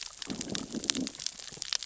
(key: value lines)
label: biophony, growl
recorder: SoundTrap 600 or HydroMoth